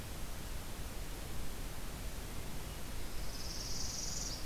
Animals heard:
Northern Parula (Setophaga americana)

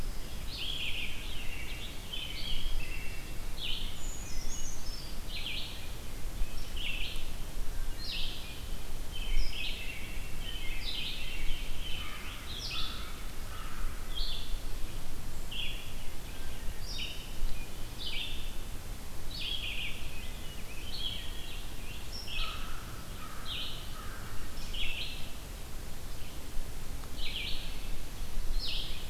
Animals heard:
Brown Creeper (Certhia americana), American Robin (Turdus migratorius), Scarlet Tanager (Piranga olivacea), Wood Thrush (Hylocichla mustelina), Red-eyed Vireo (Vireo olivaceus), Pine Warbler (Setophaga pinus), American Crow (Corvus brachyrhynchos)

